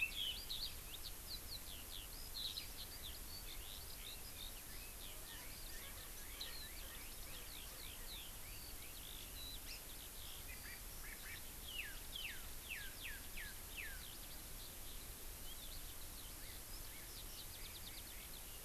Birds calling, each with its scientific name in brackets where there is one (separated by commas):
Eurasian Skylark (Alauda arvensis), Red-billed Leiothrix (Leiothrix lutea)